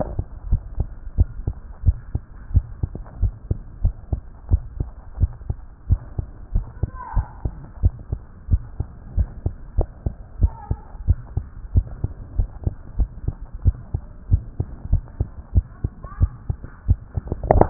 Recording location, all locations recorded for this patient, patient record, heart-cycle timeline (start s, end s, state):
tricuspid valve (TV)
aortic valve (AV)+pulmonary valve (PV)+tricuspid valve (TV)+mitral valve (MV)
#Age: Child
#Sex: Female
#Height: 109.0 cm
#Weight: 19.0 kg
#Pregnancy status: False
#Murmur: Present
#Murmur locations: mitral valve (MV)+pulmonary valve (PV)+tricuspid valve (TV)
#Most audible location: tricuspid valve (TV)
#Systolic murmur timing: Holosystolic
#Systolic murmur shape: Plateau
#Systolic murmur grading: I/VI
#Systolic murmur pitch: Low
#Systolic murmur quality: Harsh
#Diastolic murmur timing: nan
#Diastolic murmur shape: nan
#Diastolic murmur grading: nan
#Diastolic murmur pitch: nan
#Diastolic murmur quality: nan
#Outcome: Abnormal
#Campaign: 2014 screening campaign
0.00	0.29	unannotated
0.29	0.50	diastole
0.50	0.62	S1
0.62	0.78	systole
0.78	0.88	S2
0.88	1.18	diastole
1.18	1.28	S1
1.28	1.46	systole
1.46	1.56	S2
1.56	1.84	diastole
1.84	1.96	S1
1.96	2.12	systole
2.12	2.22	S2
2.22	2.52	diastole
2.52	2.64	S1
2.64	2.82	systole
2.82	2.90	S2
2.90	3.20	diastole
3.20	3.34	S1
3.34	3.50	systole
3.50	3.58	S2
3.58	3.82	diastole
3.82	3.94	S1
3.94	4.10	systole
4.10	4.20	S2
4.20	4.50	diastole
4.50	4.62	S1
4.62	4.78	systole
4.78	4.88	S2
4.88	5.20	diastole
5.20	5.30	S1
5.30	5.48	systole
5.48	5.58	S2
5.58	5.88	diastole
5.88	6.00	S1
6.00	6.18	systole
6.18	6.26	S2
6.26	6.54	diastole
6.54	6.66	S1
6.66	6.82	systole
6.82	6.90	S2
6.90	7.14	diastole
7.14	7.26	S1
7.26	7.44	systole
7.44	7.54	S2
7.54	7.82	diastole
7.82	7.94	S1
7.94	8.10	systole
8.10	8.20	S2
8.20	8.50	diastole
8.50	8.62	S1
8.62	8.78	systole
8.78	8.88	S2
8.88	9.16	diastole
9.16	9.28	S1
9.28	9.44	systole
9.44	9.54	S2
9.54	9.76	diastole
9.76	9.88	S1
9.88	10.04	systole
10.04	10.14	S2
10.14	10.40	diastole
10.40	10.52	S1
10.52	10.68	systole
10.68	10.78	S2
10.78	11.06	diastole
11.06	11.18	S1
11.18	11.36	systole
11.36	11.44	S2
11.44	11.74	diastole
11.74	11.86	S1
11.86	12.02	systole
12.02	12.12	S2
12.12	12.36	diastole
12.36	12.48	S1
12.48	12.64	systole
12.64	12.74	S2
12.74	12.98	diastole
12.98	13.10	S1
13.10	13.26	systole
13.26	13.36	S2
13.36	13.64	diastole
13.64	13.76	S1
13.76	13.92	systole
13.92	14.02	S2
14.02	14.30	diastole
14.30	14.42	S1
14.42	14.58	systole
14.58	14.68	S2
14.68	14.90	diastole
14.90	15.02	S1
15.02	15.18	systole
15.18	15.28	S2
15.28	15.54	diastole
15.54	15.66	S1
15.66	15.82	systole
15.82	15.92	S2
15.92	16.20	diastole
16.20	16.32	S1
16.32	16.48	systole
16.48	16.58	S2
16.58	16.88	diastole
16.88	17.70	unannotated